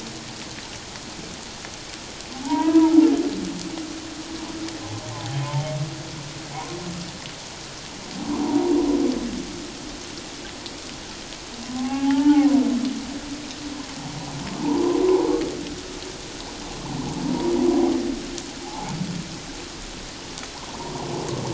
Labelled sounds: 2.3	3.0	humpback whale, 0.78 to 1.0 kHz
5.1	5.4	humpback whale, 0.78 to 0.91 kHz
6.5	6.8	humpback whale, 0.78 to 1.1 kHz
8.4	8.7	humpback whale, 0.78 to 1.0 kHz
11.6	12.5	humpback whale, 0.78 to 1.5 kHz
14.6	15.0	humpback whale, 0.81 to 1.1 kHz
17.3	17.5	humpback whale, 0.91 to 1.0 kHz
18.6	18.9	humpback whale, 0.78 to 0.94 kHz
20.6	20.9	humpback whale, 0.81 to 1.1 kHz

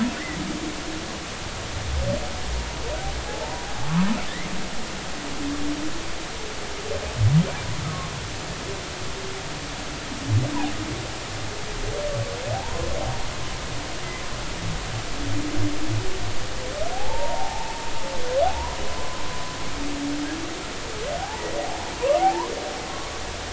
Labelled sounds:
3.3	3.6	humpback whale, 0.80 to 1.0 kHz
12.5	12.9	humpback whale, 0.80 to 1.1 kHz
16.9	19.2	humpback whale, 0.80 to 1.1 kHz
21.2	21.9	humpback whale, 0.80 to 0.99 kHz
22.2	22.5	humpback whale, 0.80 to 1.1 kHz

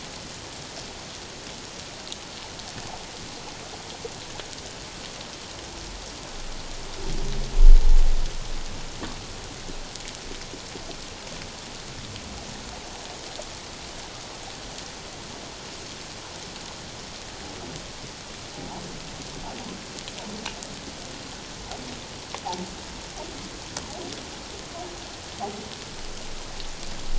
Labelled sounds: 18.5	18.8	humpback whale, 0.78 to 1.0 kHz

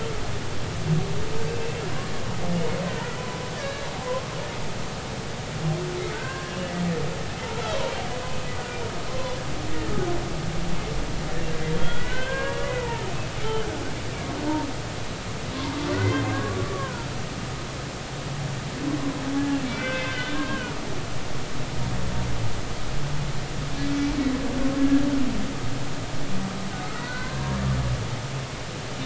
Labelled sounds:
1.5	1.8	humpback whale, 2.5 to 2.7 kHz
2.9	4.3	humpback whale, 0.96 to 1.8 kHz
6.1	6.7	humpback whale, 0.99 to 3.0 kHz
9.1	9.3	humpback whale, 0.96 to 1.1 kHz
9.7	10.0	humpback whale, 1.7 to 1.9 kHz
11.8	12.7	humpback whale, 0.96 to 3.4 kHz
15.9	17.1	humpback whale, 0.90 to 2.1 kHz
19.6	20.7	humpback whale, 1.0 to 3.6 kHz
23.8	25.0	humpback whale, 1.6 to 2.4 kHz
26.8	27.7	humpback whale, 0.96 to 2.1 kHz

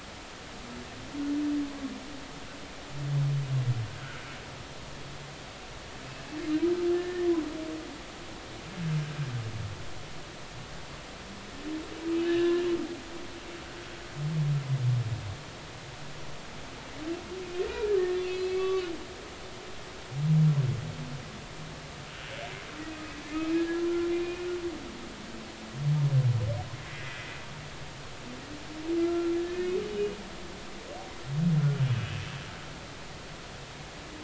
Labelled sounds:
4.0	4.3	humpback whale, 1.3 to 1.6 kHz
6.9	7.3	humpback whale, 1.7 to 1.9 kHz
12.2	12.6	humpback whale, 1.7 to 3.9 kHz
18.0	18.8	humpback whale, 1.1 to 5.0 kHz
23.5	24.5	humpback whale, 1.3 to 2.6 kHz
26.9	27.2	humpback whale, 1.9 to 2.1 kHz
29.0	30.1	humpback whale, 1.3 to 3.0 kHz

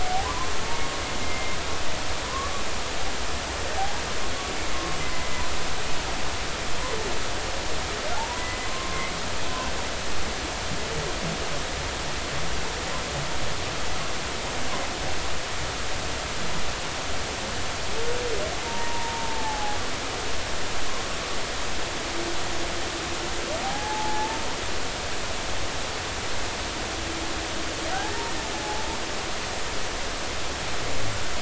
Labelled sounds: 0.0	0.5	humpback whale, 0.80 to 1.2 kHz
1.2	1.6	humpback whale, 2.0 to 2.1 kHz
2.3	2.5	humpback whale, 0.96 to 1.2 kHz
3.8	4.0	humpback whale, 0.80 to 0.99 kHz
4.7	5.3	humpback whale, 1.0 to 2.1 kHz
8.2	9.1	humpback whale, 0.80 to 2.0 kHz
18.6	19.8	humpback whale, 0.80 to 0.99 kHz
23.6	24.4	humpback whale, 0.80 to 0.96 kHz
28.5	28.9	humpback whale, 0.80 to 0.93 kHz

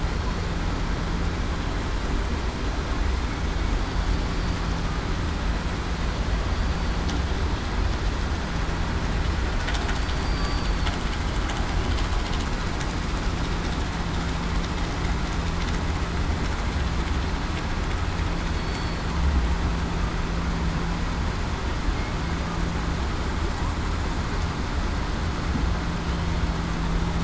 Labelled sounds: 10.0	10.9	killer whale, southern resident, 4.4 to 4.7 kHz
18.5	19.0	killer whale, southern resident, 4.3 to 4.5 kHz

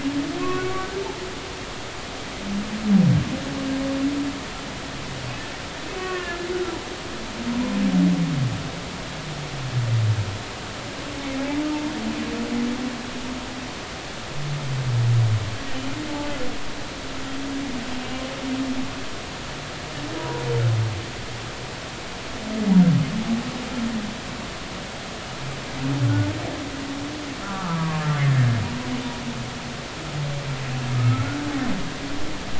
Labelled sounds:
0.4	0.7	humpback whale, 1.0 to 2.6 kHz
6.0	6.4	humpback whale, 1.0 to 1.9 kHz
20.2	20.4	humpback whale, 0.93 to 1.0 kHz
27.4	28.6	humpback whale, 1.0 to 1.9 kHz
31.0	31.3	humpback whale, 1.2 to 1.5 kHz

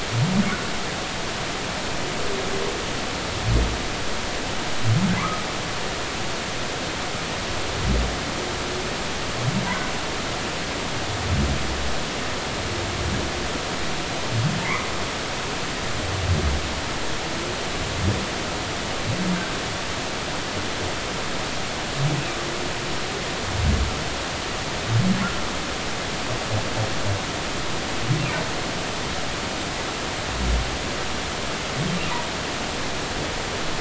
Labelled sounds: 5.2	5.4	humpback whale, 0.96 to 1.3 kHz

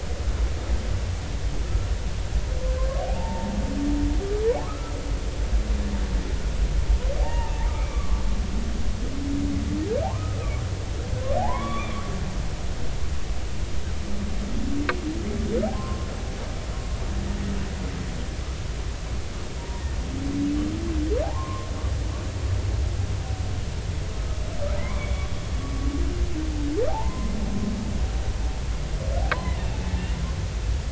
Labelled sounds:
3.1	3.5	humpback whale, 0.80 to 0.99 kHz
4.6	4.9	humpback whale, 1.0 to 1.4 kHz
7.2	8.2	humpback whale, 0.80 to 2.4 kHz
10.0	10.4	humpback whale, 0.80 to 1.3 kHz
11.4	12.0	humpback whale, 0.80 to 3.6 kHz
15.7	16.1	humpback whale, 0.99 to 1.1 kHz
19.6	19.9	humpback whale, 0.86 to 1.1 kHz
21.2	21.7	humpback whale, 0.80 to 1.2 kHz
24.8	25.3	humpback whale, 0.86 to 3.6 kHz
25.6	25.9	humpback whale, 1.1 to 1.2 kHz
26.9	27.3	humpback whale, 0.80 to 1.1 kHz
29.3	29.8	humpback whale, 0.93 to 2.8 kHz

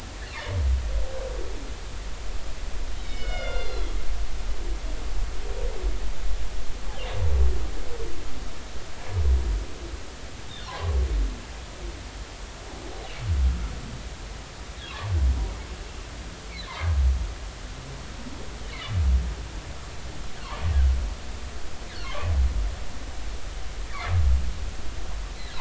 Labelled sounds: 3.0	3.9	humpback whale, 1.3 to 5.4 kHz
10.7	11.0	humpback whale, 0.80 to 1.2 kHz
22.0	22.3	humpback whale, 0.93 to 1.2 kHz

